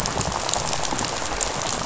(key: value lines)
label: biophony, rattle
recorder: SoundTrap 500